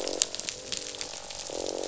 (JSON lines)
{"label": "biophony, croak", "recorder": "SoundTrap 500"}